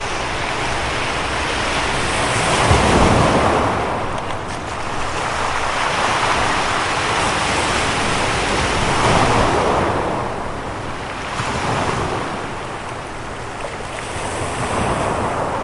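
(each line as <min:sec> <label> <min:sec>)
0:00.0 Ocean waves crashing and splashing loudly with sharp sounds as they retreat. 0:15.6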